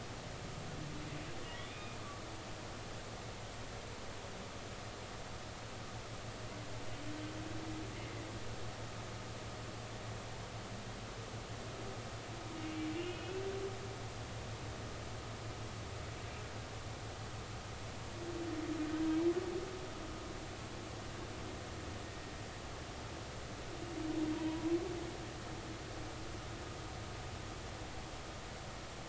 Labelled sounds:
1.6	2.0	humpback whale, 2.1 to 3.7 kHz
8.0	8.3	humpback whale, 1.9 to 2.2 kHz
13.0	13.4	humpback whale, 2.4 to 3.0 kHz
24.3	24.8	humpback whale, 0.90 to 1.2 kHz

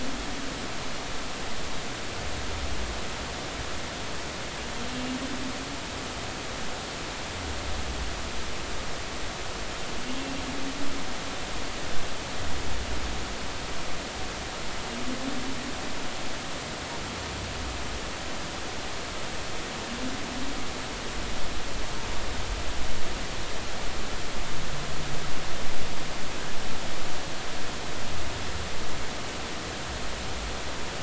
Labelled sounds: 4.9	5.2	humpback whale, 2.7 to 2.8 kHz

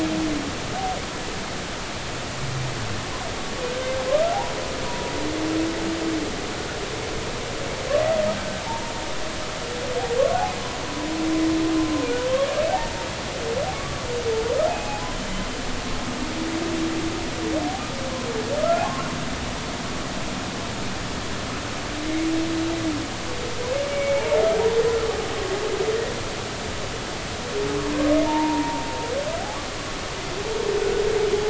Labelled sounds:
4.8	5.1	humpback whale, 0.93 to 1.0 kHz
8.3	8.9	humpback whale, 0.80 to 1.6 kHz
12.7	13.0	humpback whale, 0.80 to 0.96 kHz
13.7	14.0	humpback whale, 1.1 to 1.2 kHz
14.7	15.1	humpback whale, 0.80 to 0.90 kHz
23.9	24.3	humpback whale, 2.1 to 2.4 kHz
28.2	28.8	humpback whale, 0.83 to 1.1 kHz

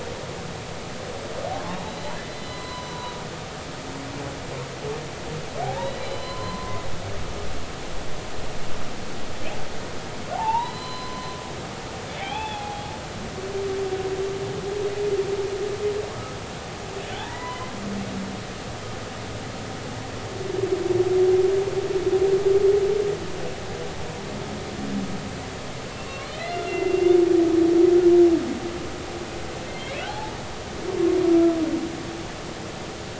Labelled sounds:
1.7	3.2	humpback whale, 0.90 to 4.1 kHz
5.6	6.8	humpback whale, 0.80 to 4.1 kHz
10.3	12.9	humpback whale, 0.80 to 4.1 kHz
17.1	17.7	humpback whale, 0.83 to 2.1 kHz
25.9	27.2	humpback whale, 1.9 to 2.9 kHz
29.7	30.4	humpback whale, 0.80 to 2.4 kHz
31.2	31.6	humpback whale, 1.3 to 1.4 kHz

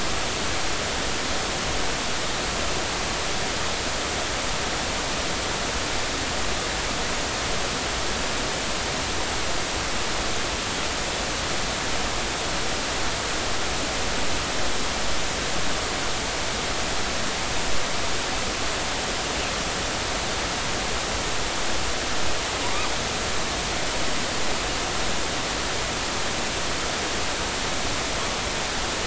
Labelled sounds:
22.6	22.9	killer whale, northern resident, 0.90 to 1.3 kHz

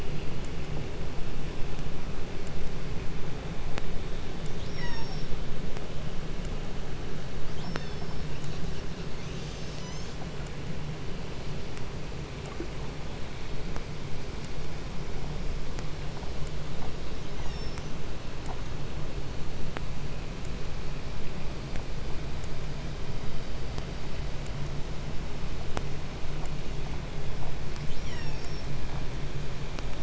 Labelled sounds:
4.3	5.5	killer whale, southern resident, call S36, 0.43 to 8.0 kHz
7.3	8.4	killer whale, southern resident, call S36, 0.45 to 6.2 kHz
8.3	10.2	killer whale, southern resident, 0.57 to 8.0 kHz
17.0	18.1	killer whale, southern resident, call S36, 1.1 to 7.1 kHz
27.6	28.7	killer whale, southern resident, call S36, 0.49 to 7.9 kHz

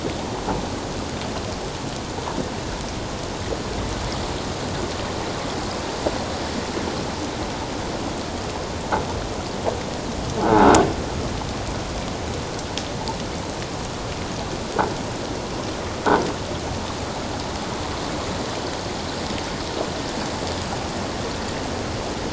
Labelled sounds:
10.4	10.7	croaking sound likely from a nearby submerged object, 1.2 to 1.6 kHz

